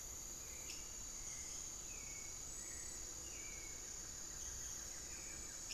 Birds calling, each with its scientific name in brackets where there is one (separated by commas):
Hauxwell's Thrush (Turdus hauxwelli), unidentified bird, Buff-throated Woodcreeper (Xiphorhynchus guttatus)